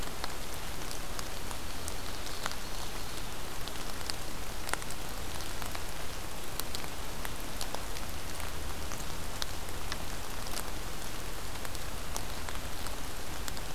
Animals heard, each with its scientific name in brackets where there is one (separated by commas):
Ovenbird (Seiurus aurocapilla)